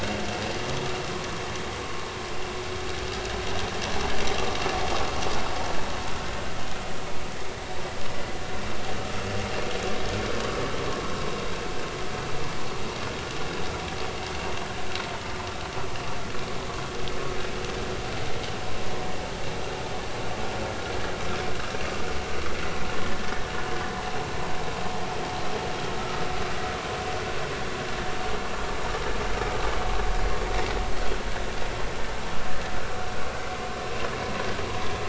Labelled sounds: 26.0	26.2	vessel noise, 1.2 to 1.4 kHz

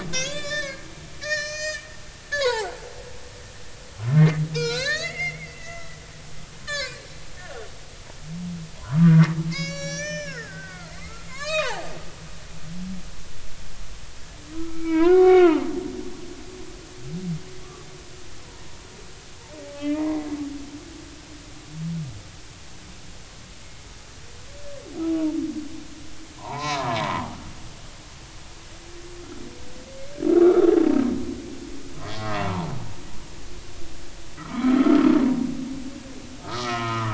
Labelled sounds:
0.1	0.8	humpback whale, 0.99 to 7.2 kHz
1.2	1.9	humpback whale, 1.1 to 8.0 kHz
2.3	2.7	humpback whale, 0.80 to 4.7 kHz
4.0	5.9	humpback whale, 0.96 to 7.2 kHz
6.7	7.7	humpback whale, 0.99 to 7.2 kHz
8.8	11.9	humpback whale, 0.80 to 7.4 kHz
14.5	15.7	humpback whale, 0.83 to 3.8 kHz
19.6	20.2	humpback whale, 0.80 to 2.5 kHz
26.4	27.3	humpback whale, 0.80 to 4.1 kHz
28.1	28.4	humpback whale, 1.1 to 1.3 kHz
30.3	30.7	humpback whale, 1.1 to 1.5 kHz
32.1	32.7	humpback whale, 0.86 to 1.2 kHz
34.4	35.1	humpback whale, 0.99 to 1.4 kHz
36.4	37.1	humpback whale, 0.90 to 2.0 kHz

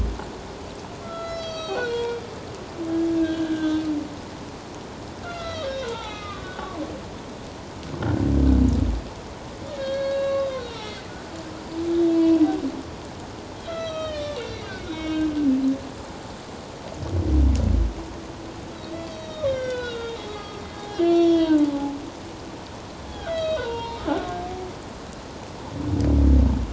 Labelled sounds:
1.0	2.2	humpback whale, 1.1 to 7.4 kHz
3.1	3.8	humpback whale, 1.5 to 3.6 kHz
5.2	6.9	humpback whale, 0.81 to 4.1 kHz
9.8	11.1	humpback whale, 1.0 to 5.8 kHz
12.1	12.4	humpback whale, 2.6 to 2.7 kHz
13.6	15.3	humpback whale, 1.2 to 6.0 kHz
18.7	21.9	humpback whale, 0.78 to 5.9 kHz
23.1	24.0	humpback whale, 0.88 to 4.0 kHz

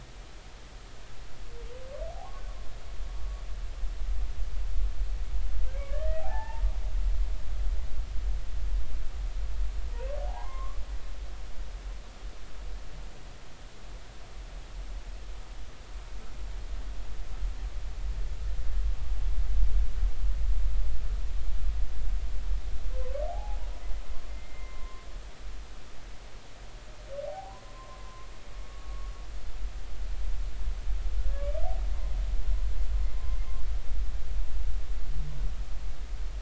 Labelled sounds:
2.1	2.4	humpback whale, 0.80 to 1.2 kHz
5.8	6.6	humpback whale, 0.80 to 2.0 kHz
10.3	10.8	humpback whale, 0.80 to 1.2 kHz
23.3	25.1	humpback whale, 0.80 to 2.2 kHz
27.3	29.1	humpback whale, 0.80 to 1.2 kHz

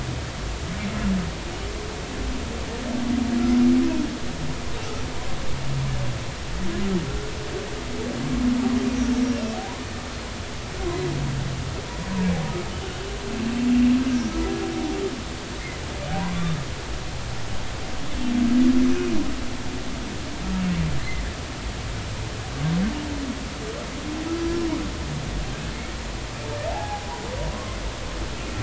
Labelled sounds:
9.2	9.5	humpback whale, 5.4 to 5.7 kHz
16.2	16.6	humpback whale, 0.90 to 1.2 kHz
26.7	27.1	humpback whale, 0.80 to 1.7 kHz

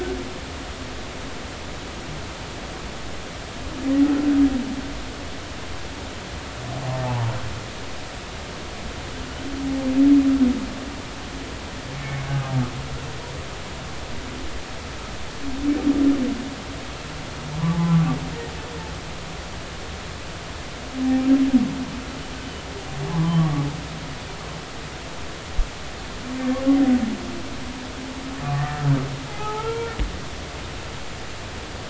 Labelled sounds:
7.0	7.3	humpback whale, 0.80 to 0.99 kHz
11.9	12.2	humpback whale, 2.1 to 2.3 kHz
17.7	18.0	humpback whale, 0.80 to 0.90 kHz
23.1	23.6	humpback whale, 0.96 to 1.2 kHz
28.4	28.8	humpback whale, 1.1 to 1.9 kHz
29.3	30.0	humpback whale, 0.80 to 3.3 kHz

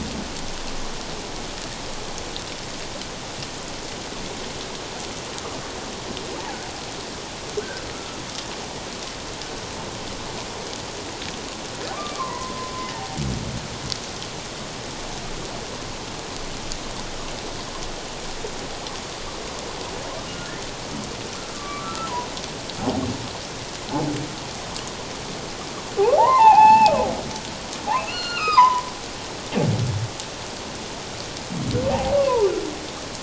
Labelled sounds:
7.9	8.2	humpback whale, 1.2 to 1.4 kHz
12.2	12.7	humpback whale, 0.91 to 2.1 kHz
20.3	20.6	humpback whale, 1.4 to 1.5 kHz
21.5	22.1	humpback whale, 1.1 to 1.4 kHz
26.2	27.0	humpback whale, 0.78 to 5.4 kHz
27.9	28.9	humpback whale, 0.78 to 5.1 kHz
32.2	32.5	humpback whale, 0.81 to 1.2 kHz

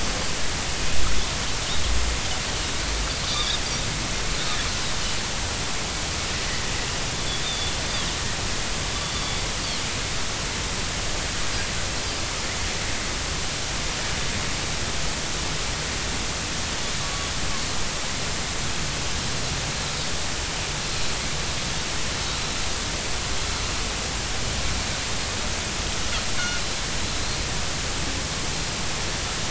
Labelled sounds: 3.3	3.6	Pacific white-sided dolphin, 3.3 to 4.8 kHz
7.4	7.7	Pacific white-sided dolphin, 3.4 to 3.7 kHz
9.1	9.4	Pacific white-sided dolphin, 3.4 to 3.6 kHz
17.0	17.3	Pacific white-sided dolphin, 1.1 to 1.2 kHz

